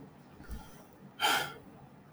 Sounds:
Sigh